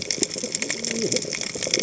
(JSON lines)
{"label": "biophony, cascading saw", "recorder": "HydroMoth"}